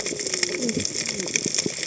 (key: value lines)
label: biophony, cascading saw
recorder: HydroMoth